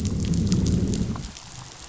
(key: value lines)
label: biophony, growl
recorder: SoundTrap 500